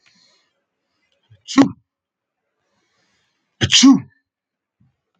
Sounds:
Sneeze